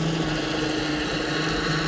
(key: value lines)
label: anthrophony, boat engine
recorder: SoundTrap 500